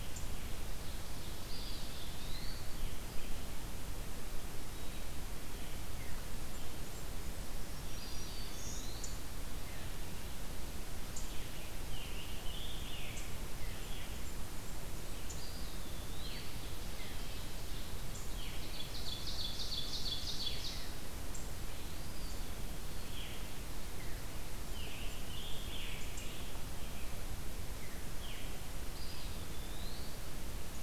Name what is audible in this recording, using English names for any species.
Ovenbird, Eastern Wood-Pewee, Scarlet Tanager, Blackburnian Warbler, Black-throated Green Warbler, Red-eyed Vireo